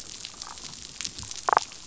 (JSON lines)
{"label": "biophony, damselfish", "recorder": "SoundTrap 500"}